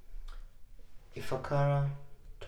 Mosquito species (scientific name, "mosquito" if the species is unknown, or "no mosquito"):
Mansonia africanus